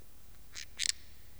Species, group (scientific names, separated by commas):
Parasteropleurus perezii, Orthoptera